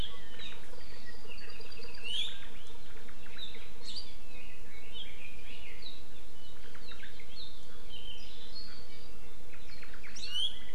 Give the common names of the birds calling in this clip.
Apapane, Red-billed Leiothrix, Omao